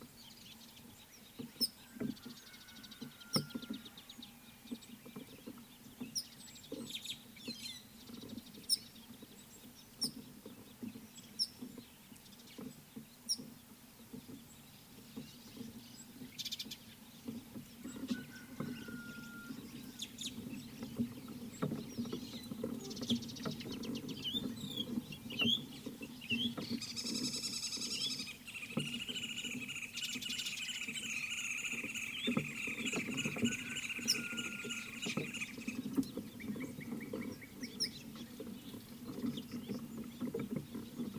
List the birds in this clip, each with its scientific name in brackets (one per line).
Slate-colored Boubou (Laniarius funebris)
Red-headed Weaver (Anaplectes rubriceps)
Mariqua Sunbird (Cinnyris mariquensis)
White-headed Buffalo-Weaver (Dinemellia dinemelli)
White-browed Robin-Chat (Cossypha heuglini)
Green Woodhoopoe (Phoeniculus purpureus)